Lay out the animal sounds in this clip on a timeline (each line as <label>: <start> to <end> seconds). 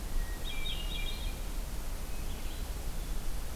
Hermit Thrush (Catharus guttatus): 0.0 to 1.4 seconds
Hermit Thrush (Catharus guttatus): 2.0 to 3.4 seconds